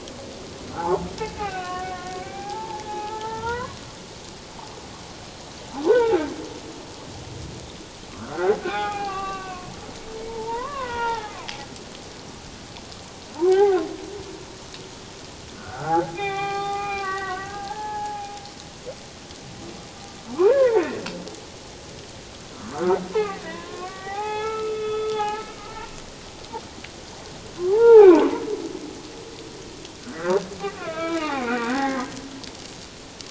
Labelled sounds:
1.3	3.8	humpback whale, 0.78 to 2.9 kHz
5.9	6.3	humpback whale, 0.78 to 1.6 kHz
8.2	9.7	humpback whale, 0.78 to 3.9 kHz
10.3	11.5	humpback whale, 0.78 to 3.0 kHz
13.5	13.9	humpback whale, 0.78 to 2.1 kHz
15.6	18.3	humpback whale, 0.78 to 4.4 kHz
20.5	21.0	humpback whale, 0.78 to 2.2 kHz
22.7	25.4	humpback whale, 0.78 to 3.5 kHz
27.7	28.2	humpback whale, 0.78 to 2.6 kHz
30.0	30.4	humpback whale, 1.3 to 1.8 kHz
30.8	32.1	humpback whale, 0.78 to 3.0 kHz

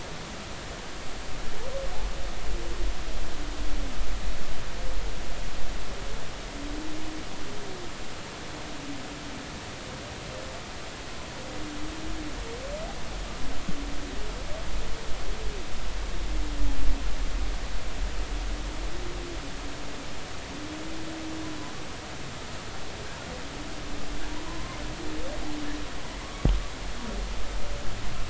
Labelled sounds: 24.5	24.8	humpback whale, 0.93 to 1.1 kHz
26.2	26.5	humpback whale, 1.1 to 1.3 kHz

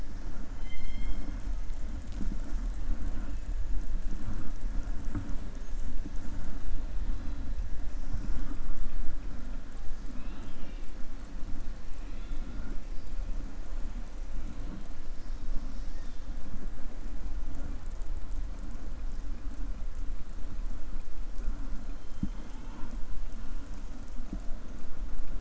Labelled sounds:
0.5	1.3	killer whale, southern resident, 2.0 to 6.4 kHz
11.9	12.5	killer whale, southern resident, 1.9 to 4.2 kHz

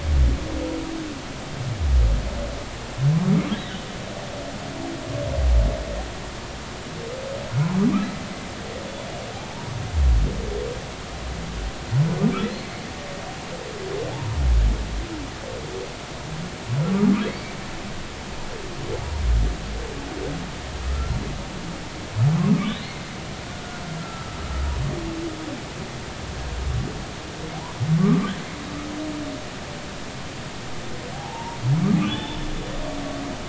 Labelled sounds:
14.1	14.4	humpback whale, 0.80 to 1.1 kHz
17.3	17.6	humpback whale, 2.0 to 2.4 kHz
20.9	21.2	humpback whale, 1.2 to 1.4 kHz
22.5	23.1	humpback whale, 1.1 to 4.4 kHz
24.0	24.4	humpback whale, 1.3 to 1.4 kHz
31.1	32.4	humpback whale, 0.80 to 3.6 kHz

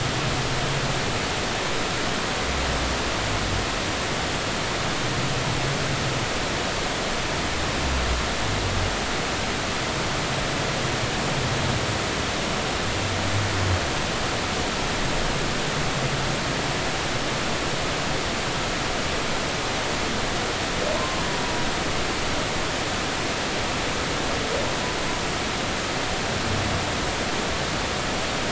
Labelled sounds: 21.0	21.2	humpback whale, 0.99 to 1.1 kHz

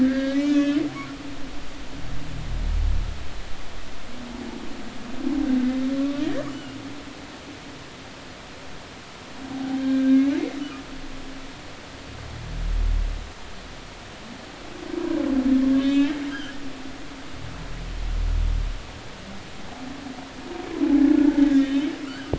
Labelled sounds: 0.0	0.8	humpback whale, 1.5 to 6.8 kHz
1.5	1.8	humpback whale, 2.5 to 2.7 kHz
6.0	6.5	humpback whale, 1.1 to 1.9 kHz
7.5	7.8	humpback whale, 2.8 to 3.0 kHz
9.5	10.9	humpback whale, 0.80 to 2.5 kHz
15.8	16.6	humpback whale, 1.2 to 3.8 kHz
21.1	21.9	humpback whale, 1.4 to 3.8 kHz

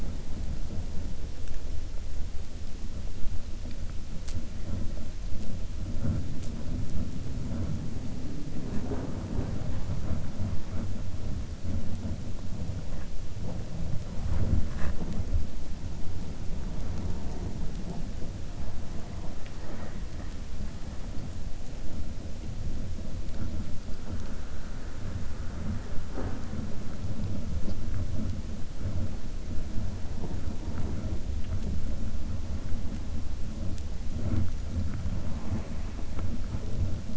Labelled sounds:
19.1	20.0	killer whale, 0.42 to 3.4 kHz

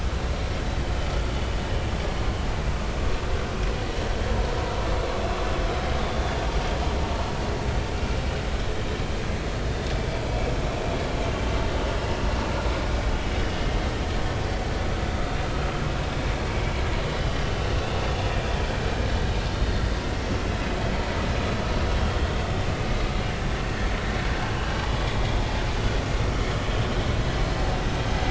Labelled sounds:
6.0	6.4	vessel noise, 3.3 to 3.6 kHz
23.6	23.9	vessel noise, 1.7 to 1.9 kHz

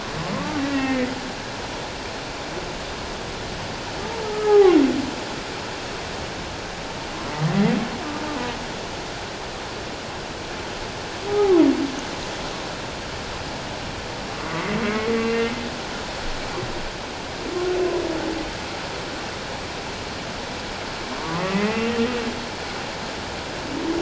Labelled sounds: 0.3	1.1	humpback whale, 0.97 to 2.8 kHz
4.3	4.8	humpback whale, 0.78 to 1.3 kHz
11.3	11.7	humpback whale, 0.78 to 1.3 kHz
14.4	15.5	humpback whale, 0.97 to 2.8 kHz
21.2	21.9	humpback whale, 0.91 to 2.8 kHz

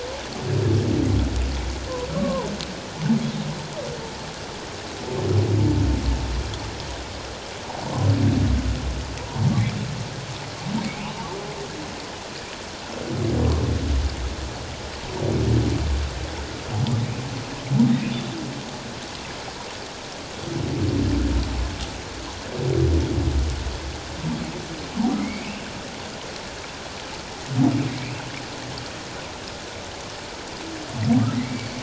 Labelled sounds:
2.1	2.5	humpback whale, 0.84 to 1.2 kHz
9.2	9.5	humpback whale, 0.88 to 1.1 kHz
18.1	18.4	humpback whale, 3.4 to 3.6 kHz
25.1	25.7	humpback whale, 2.0 to 2.8 kHz
27.9	28.2	humpback whale, 2.0 to 2.8 kHz
31.4	31.7	humpback whale, 1.9 to 2.3 kHz

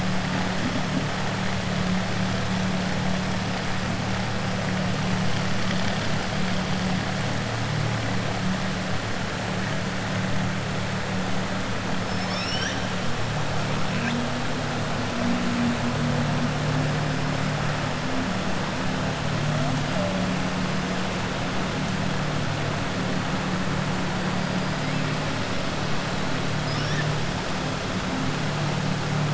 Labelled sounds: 12.0	12.8	killer whale, southern resident, 1.6 to 6.1 kHz

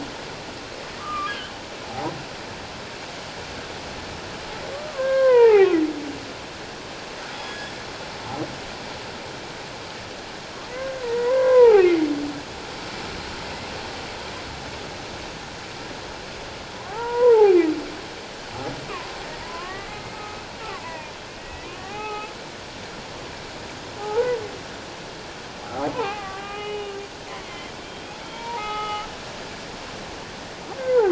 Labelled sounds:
1.0	1.3	humpback whale, 1.1 to 1.3 kHz
4.9	5.8	humpback whale, 0.78 to 2.1 kHz
7.3	7.8	humpback whale, 1.6 to 6.8 kHz
10.7	11.8	humpback whale, 0.78 to 2.2 kHz
16.7	17.6	humpback whale, 0.78 to 2.0 kHz
18.9	19.9	humpback whale, 0.94 to 2.0 kHz
20.1	22.3	humpback whale, 0.78 to 2.7 kHz
24.0	24.4	humpback whale, 0.78 to 1.5 kHz
25.6	27.0	humpback whale, 0.78 to 3.0 kHz
27.4	29.1	humpback whale, 0.78 to 3.4 kHz
30.8	31.0	humpback whale, 0.78 to 1.6 kHz

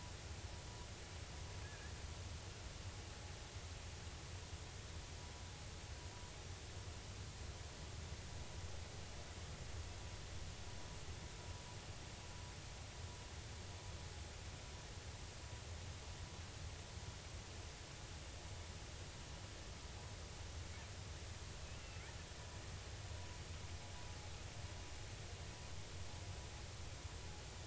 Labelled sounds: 1.6	2.0	killer whale, 1.6 to 1.9 kHz
21.6	22.0	killer whale, 2.5 to 2.9 kHz

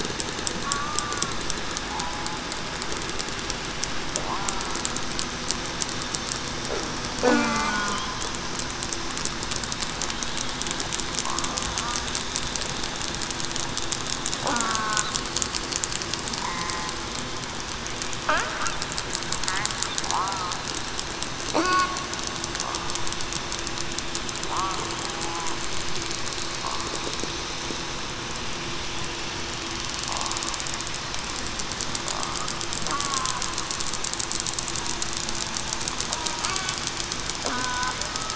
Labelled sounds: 0.6	1.2	killer whale, southern resident, 1.1 to 1.2 kHz
7.2	8.1	killer whale, southern resident, 0.98 to 1.5 kHz
14.5	15.0	killer whale, southern resident, 1.1 to 1.6 kHz
20.0	20.4	killer whale, southern resident, 0.75 to 1.0 kHz
21.6	22.0	killer whale, southern resident, 1.05 to 1.15 kHz
32.9	33.3	killer whale, southern resident, 0.98 to 1.2 kHz
37.5	37.9	killer whale, southern resident, 0.96 to 1.5 kHz

